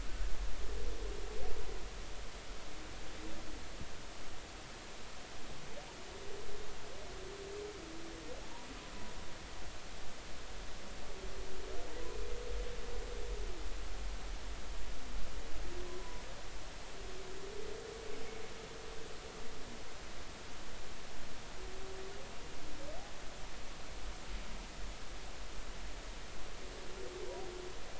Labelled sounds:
17.0	17.2	humpback whale, 0.93 to 1.0 kHz

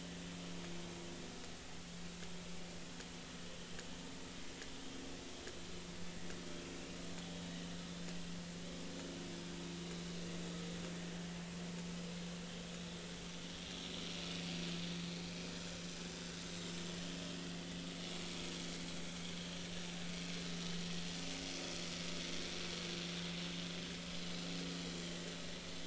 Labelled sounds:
18.1	18.4	vessel noise, 2.2 to 2.4 kHz

